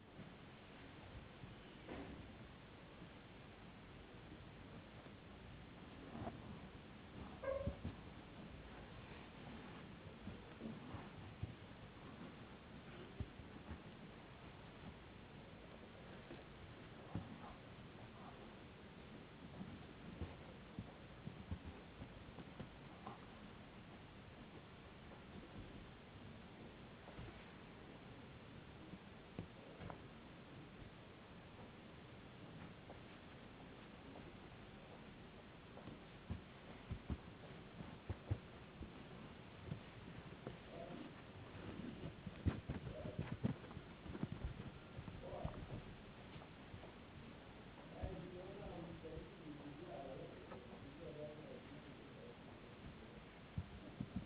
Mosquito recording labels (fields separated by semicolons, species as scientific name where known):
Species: no mosquito; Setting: insect culture